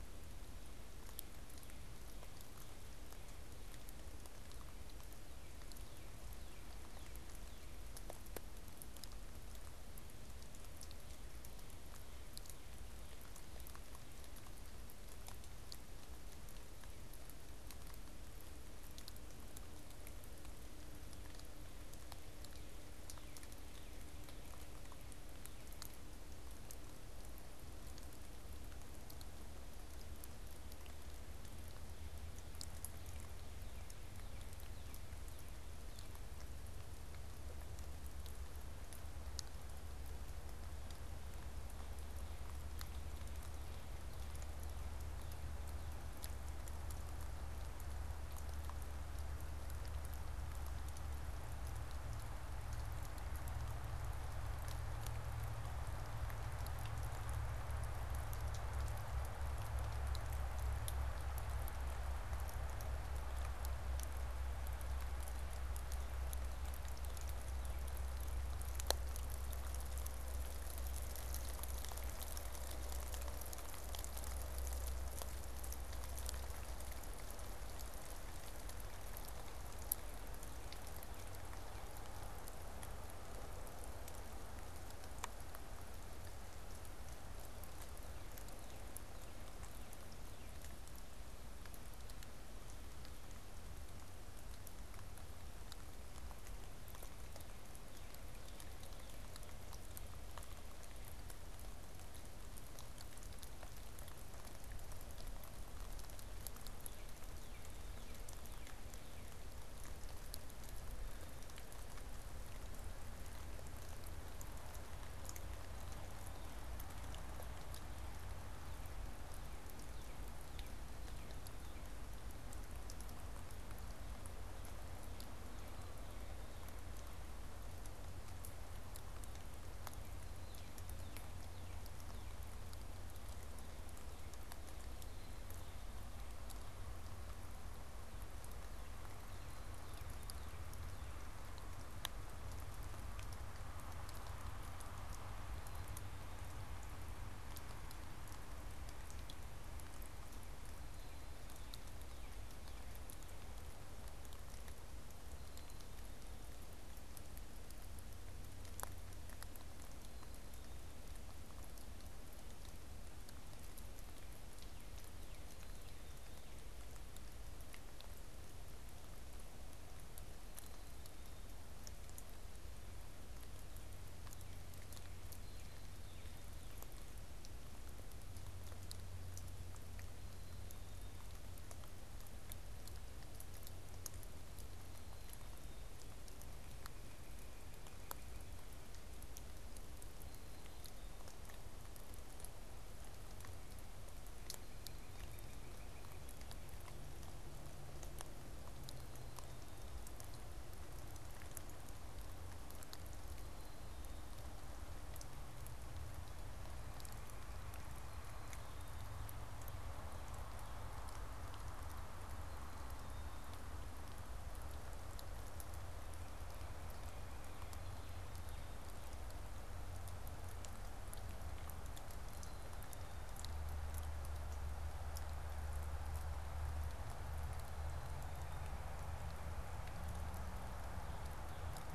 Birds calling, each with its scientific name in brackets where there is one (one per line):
White-breasted Nuthatch (Sitta carolinensis)
Northern Cardinal (Cardinalis cardinalis)
Black-capped Chickadee (Poecile atricapillus)